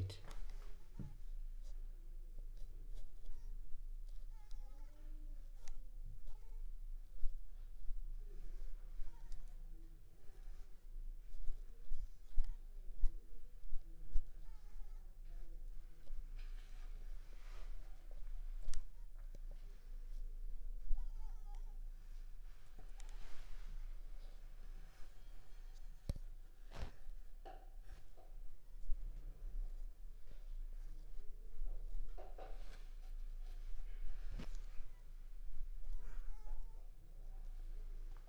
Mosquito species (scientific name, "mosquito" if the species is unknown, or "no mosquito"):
Culex pipiens complex